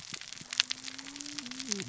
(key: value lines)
label: biophony, cascading saw
recorder: SoundTrap 600 or HydroMoth